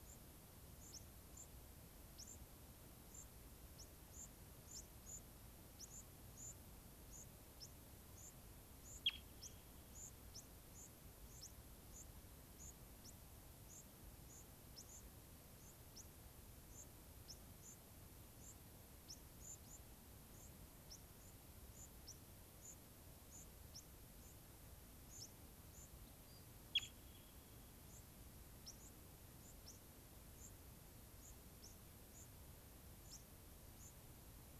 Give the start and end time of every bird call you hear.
[0.00, 1.00] White-crowned Sparrow (Zonotrichia leucophrys)
[1.30, 1.50] White-crowned Sparrow (Zonotrichia leucophrys)
[2.10, 2.50] White-crowned Sparrow (Zonotrichia leucophrys)
[3.10, 3.30] White-crowned Sparrow (Zonotrichia leucophrys)
[3.70, 4.80] White-crowned Sparrow (Zonotrichia leucophrys)
[5.10, 5.30] White-crowned Sparrow (Zonotrichia leucophrys)
[5.70, 7.70] White-crowned Sparrow (Zonotrichia leucophrys)
[8.10, 9.60] White-crowned Sparrow (Zonotrichia leucophrys)
[9.90, 10.40] White-crowned Sparrow (Zonotrichia leucophrys)
[10.70, 11.50] White-crowned Sparrow (Zonotrichia leucophrys)
[11.90, 13.20] White-crowned Sparrow (Zonotrichia leucophrys)
[13.60, 15.10] White-crowned Sparrow (Zonotrichia leucophrys)
[15.50, 16.10] White-crowned Sparrow (Zonotrichia leucophrys)
[16.70, 16.90] White-crowned Sparrow (Zonotrichia leucophrys)
[17.20, 18.60] White-crowned Sparrow (Zonotrichia leucophrys)
[19.00, 22.20] White-crowned Sparrow (Zonotrichia leucophrys)
[22.50, 23.80] White-crowned Sparrow (Zonotrichia leucophrys)
[24.20, 24.40] White-crowned Sparrow (Zonotrichia leucophrys)
[25.00, 26.00] White-crowned Sparrow (Zonotrichia leucophrys)
[26.20, 26.50] unidentified bird
[26.70, 27.00] White-crowned Sparrow (Zonotrichia leucophrys)
[27.80, 28.10] White-crowned Sparrow (Zonotrichia leucophrys)
[28.60, 29.70] White-crowned Sparrow (Zonotrichia leucophrys)
[30.30, 31.70] White-crowned Sparrow (Zonotrichia leucophrys)
[32.10, 34.00] White-crowned Sparrow (Zonotrichia leucophrys)

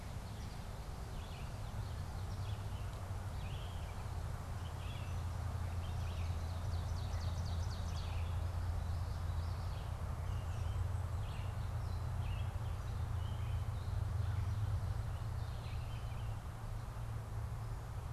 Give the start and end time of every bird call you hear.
[0.00, 3.27] American Goldfinch (Spinus tristis)
[0.00, 16.37] Red-eyed Vireo (Vireo olivaceus)
[5.87, 8.27] Ovenbird (Seiurus aurocapilla)
[8.47, 9.97] Common Yellowthroat (Geothlypis trichas)

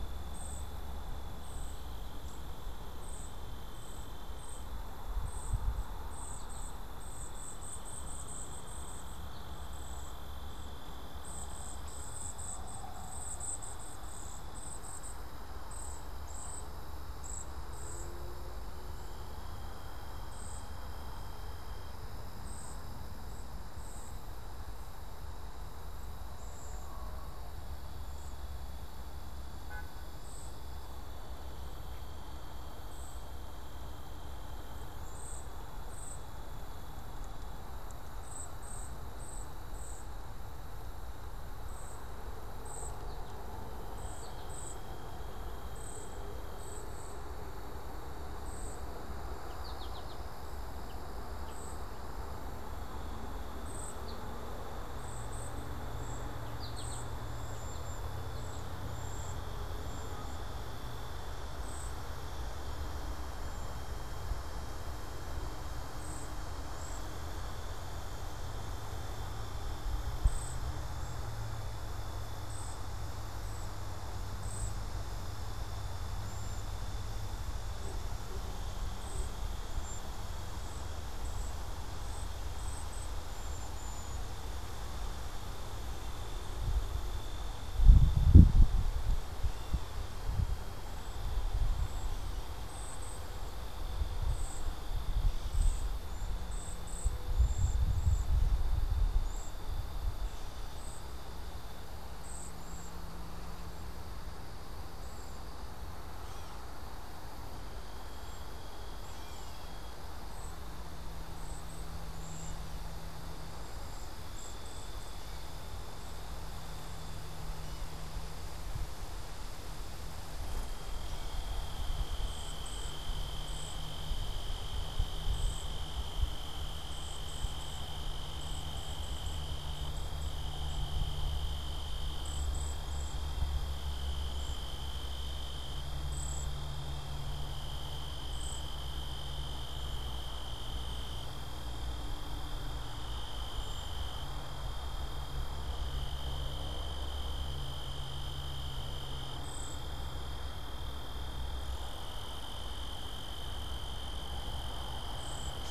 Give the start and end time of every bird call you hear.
[0.00, 47.34] Cedar Waxwing (Bombycilla cedrorum)
[6.24, 9.64] American Goldfinch (Spinus tristis)
[42.94, 44.64] American Goldfinch (Spinus tristis)
[48.34, 84.54] Cedar Waxwing (Bombycilla cedrorum)
[49.34, 54.34] American Goldfinch (Spinus tristis)
[56.34, 58.54] American Goldfinch (Spinus tristis)
[90.74, 101.34] Cedar Waxwing (Bombycilla cedrorum)
[102.14, 105.64] Cedar Waxwing (Bombycilla cedrorum)
[106.04, 106.94] Gray Catbird (Dumetella carolinensis)
[107.94, 115.34] Cedar Waxwing (Bombycilla cedrorum)
[108.94, 109.64] Gray Catbird (Dumetella carolinensis)
[112.14, 118.14] Gray Catbird (Dumetella carolinensis)
[122.14, 138.94] Cedar Waxwing (Bombycilla cedrorum)
[143.34, 144.24] Cedar Waxwing (Bombycilla cedrorum)
[149.34, 149.94] Cedar Waxwing (Bombycilla cedrorum)
[155.04, 155.64] Cedar Waxwing (Bombycilla cedrorum)

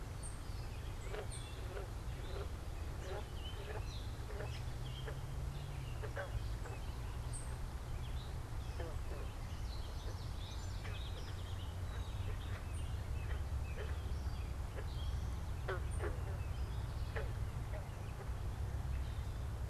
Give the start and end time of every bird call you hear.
[0.00, 1.67] unidentified bird
[0.00, 19.57] Gray Catbird (Dumetella carolinensis)
[7.17, 16.77] unidentified bird
[9.17, 10.87] Common Yellowthroat (Geothlypis trichas)
[10.37, 12.27] Song Sparrow (Melospiza melodia)

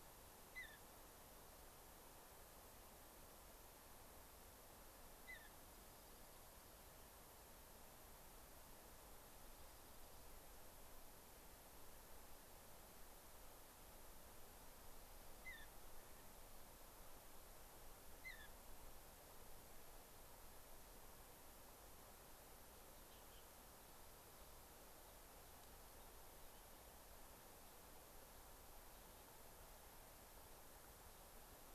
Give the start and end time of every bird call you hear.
[0.45, 0.85] Mountain Bluebird (Sialia currucoides)
[5.15, 5.55] Mountain Bluebird (Sialia currucoides)
[5.55, 6.85] Dark-eyed Junco (Junco hyemalis)
[9.15, 10.35] Dark-eyed Junco (Junco hyemalis)
[15.35, 15.75] Mountain Bluebird (Sialia currucoides)
[18.15, 18.55] Mountain Bluebird (Sialia currucoides)

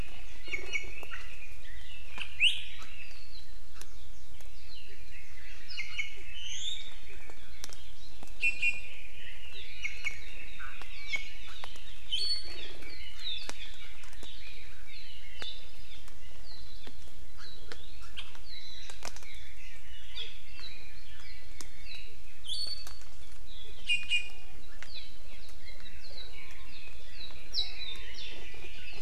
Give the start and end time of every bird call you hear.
[0.41, 1.11] Iiwi (Drepanis coccinea)
[2.31, 2.71] Iiwi (Drepanis coccinea)
[5.71, 7.01] Iiwi (Drepanis coccinea)
[8.41, 8.91] Iiwi (Drepanis coccinea)
[8.91, 15.61] Red-billed Leiothrix (Leiothrix lutea)
[9.81, 10.31] Iiwi (Drepanis coccinea)
[10.91, 11.41] Iiwi (Drepanis coccinea)
[15.41, 15.61] Iiwi (Drepanis coccinea)
[16.41, 16.81] Iiwi (Drepanis coccinea)
[17.41, 17.71] Iiwi (Drepanis coccinea)
[18.51, 22.21] Red-billed Leiothrix (Leiothrix lutea)
[22.41, 23.11] Iiwi (Drepanis coccinea)
[23.41, 24.71] Iiwi (Drepanis coccinea)
[25.61, 29.01] Red-billed Leiothrix (Leiothrix lutea)

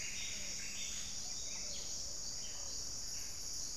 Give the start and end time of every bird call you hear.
[0.00, 1.35] Plumbeous Antbird (Myrmelastes hyperythrus)
[0.00, 2.45] Thrush-like Wren (Campylorhynchus turdinus)
[0.00, 3.77] Gray-fronted Dove (Leptotila rufaxilla)

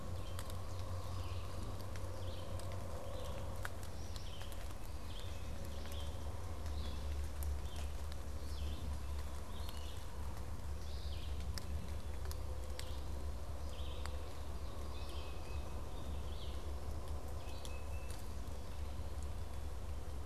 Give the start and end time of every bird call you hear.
[0.00, 18.22] Red-eyed Vireo (Vireo olivaceus)
[14.82, 20.26] Tufted Titmouse (Baeolophus bicolor)

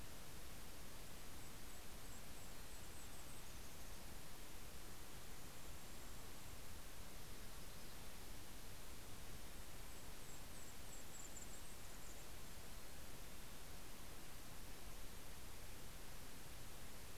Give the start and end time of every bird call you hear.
[0.40, 6.60] Golden-crowned Kinglet (Regulus satrapa)
[1.70, 4.40] Mountain Chickadee (Poecile gambeli)
[6.80, 8.70] Yellow-rumped Warbler (Setophaga coronata)
[9.40, 13.00] Golden-crowned Kinglet (Regulus satrapa)

